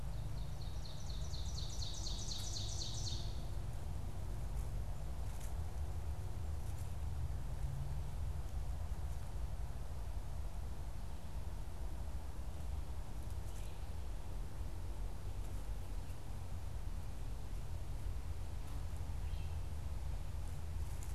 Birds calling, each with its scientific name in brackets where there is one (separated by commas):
Ovenbird (Seiurus aurocapilla)